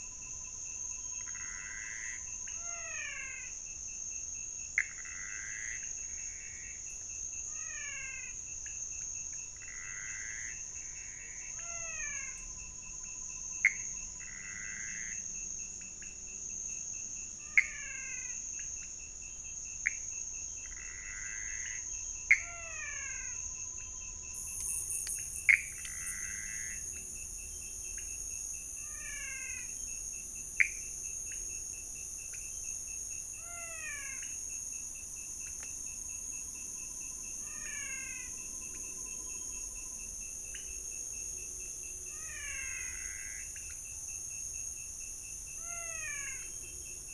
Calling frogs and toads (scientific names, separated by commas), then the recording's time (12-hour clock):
Pithecopus azureus, Physalaemus albonotatus, Leptodactylus podicipinus
4:00am